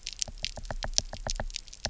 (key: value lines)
label: biophony, knock
recorder: SoundTrap 300